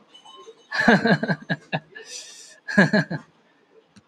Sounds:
Laughter